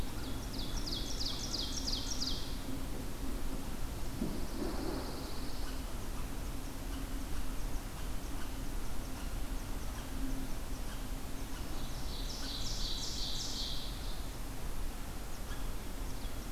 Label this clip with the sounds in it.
Ovenbird, Pine Warbler, Red Squirrel